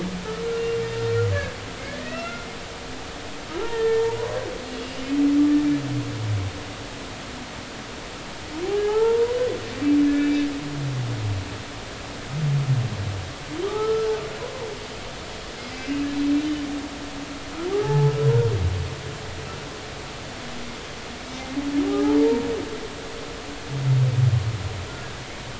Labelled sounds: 0.5	0.8	humpback whale, 2.7 to 2.8 kHz
2.0	2.5	humpback whale, 1.2 to 4.2 kHz
3.6	4.1	humpback whale, 0.86 to 1.9 kHz
4.8	5.1	humpback whale, 2.7 to 2.9 kHz
8.6	9.4	humpback whale, 0.80 to 1.9 kHz
10.1	10.4	humpback whale, 1.7 to 2.4 kHz
13.6	14.1	humpback whale, 1.1 to 1.4 kHz
17.8	18.1	humpback whale, 0.80 to 0.93 kHz
21.9	22.4	humpback whale, 0.80 to 1.4 kHz

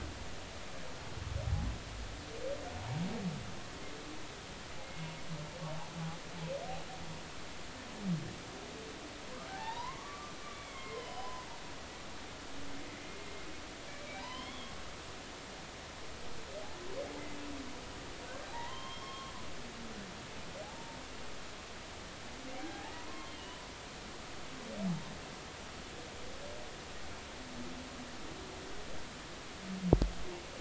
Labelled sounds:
4.8	5.1	humpback whale, 2.1 to 2.2 kHz
9.5	11.5	humpback whale, 0.80 to 4.0 kHz
12.9	13.2	humpback whale, 2.0 to 2.2 kHz
13.9	14.7	humpback whale, 0.80 to 5.4 kHz
18.5	19.3	humpback whale, 0.80 to 5.4 kHz
21.6	23.6	humpback whale, 0.80 to 3.1 kHz

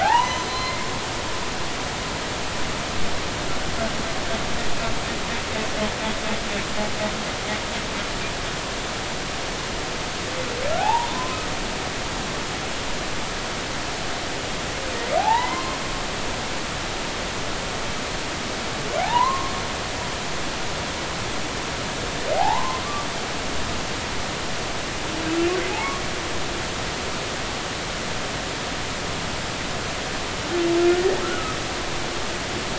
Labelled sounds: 0.0	0.9	humpback whale, 0.80 to 6.1 kHz
10.8	11.4	humpback whale, 0.80 to 1.1 kHz
15.2	15.8	humpback whale, 0.80 to 2.2 kHz
19.0	19.5	humpback whale, 0.80 to 1.2 kHz
22.3	22.8	humpback whale, 0.80 to 1.1 kHz

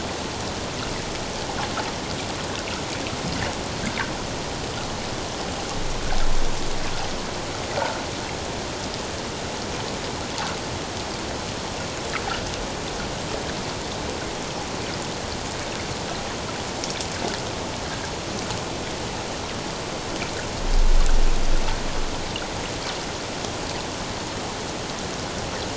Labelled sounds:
7.8	8.0	water noise, 1.3 to 1.5 kHz

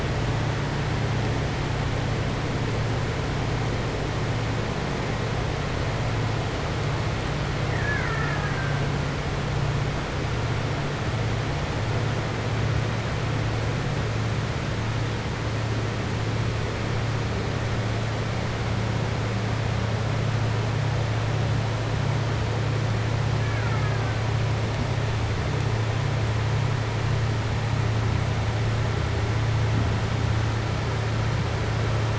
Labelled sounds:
7.6	8.8	killer whale, Bigg's (transient), 0.87 to 2.8 kHz
23.4	24.1	killer whale, Bigg's (transient), 0.86 to 2.5 kHz

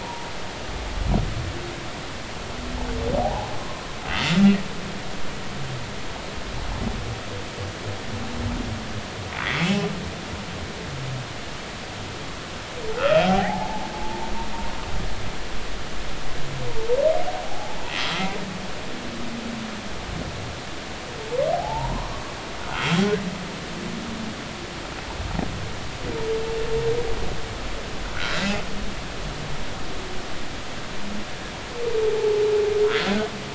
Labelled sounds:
3.2	3.5	humpback whale, 0.80 to 1.1 kHz
9.6	9.9	humpback whale, 2.5 to 2.8 kHz
12.9	14.8	humpback whale, 0.80 to 1.5 kHz
17.4	17.8	humpback whale, 0.80 to 0.93 kHz
21.5	23.1	humpback whale, 0.80 to 3.3 kHz
28.1	28.4	humpback whale, 1.3 to 1.6 kHz

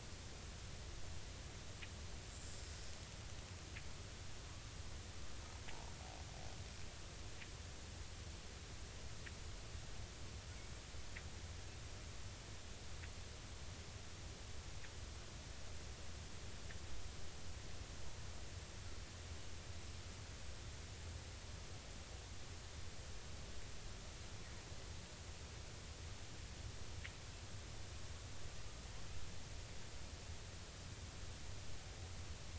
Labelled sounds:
2.3	2.6	killer whale, Bigg's (transient), 7.1 to 7.5 kHz

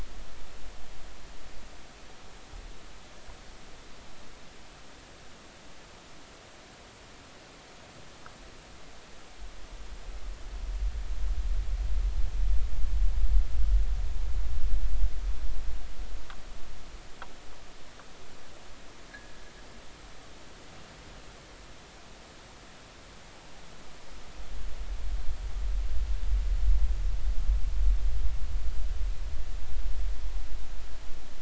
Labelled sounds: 19.1	19.4	fishing gear, 1.6 to 1.9 kHz

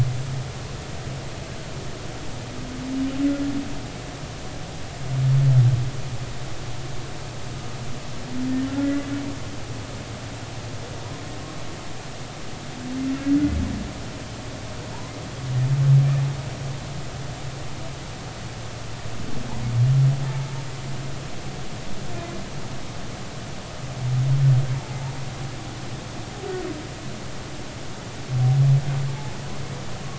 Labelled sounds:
8.7	8.9	humpback whale, 1.3 to 1.4 kHz

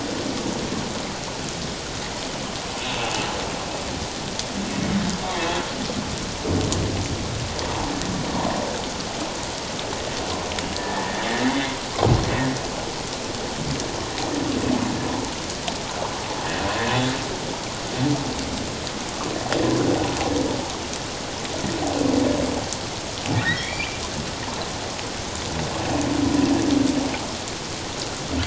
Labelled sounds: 2.8	3.3	humpback whale, 2.5 to 2.8 kHz
4.7	5.0	humpback whale, 2.1 to 2.3 kHz
10.7	11.7	humpback whale, 1.7 to 2.2 kHz
15.1	15.3	humpback whale, 0.81 to 1.0 kHz
23.3	24.0	humpback whale, 1.4 to 2.8 kHz

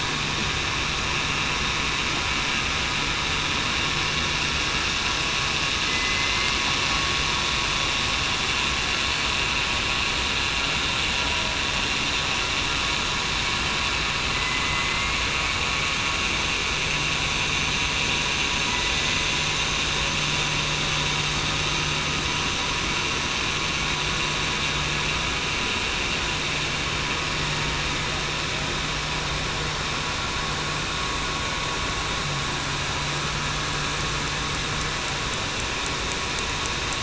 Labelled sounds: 5.8	6.6	killer whale, southern resident, 2.0 to 2.2 kHz
14.6	15.2	killer whale, southern resident, 2.0 to 2.3 kHz

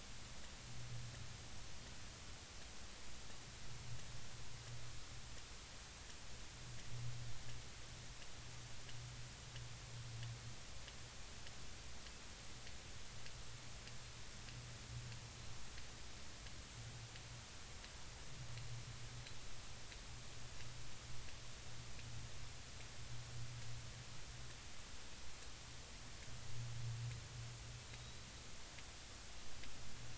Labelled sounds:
27.9	28.3	Pacific white-sided dolphin, 3.7 to 4.0 kHz

